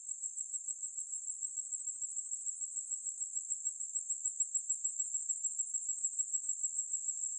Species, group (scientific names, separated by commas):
Allonemobius tinnulus, Orthoptera